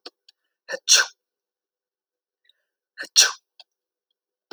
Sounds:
Sneeze